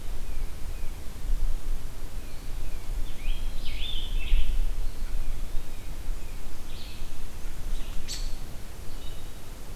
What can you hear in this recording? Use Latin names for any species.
Baeolophus bicolor, Piranga olivacea, Contopus virens, Turdus migratorius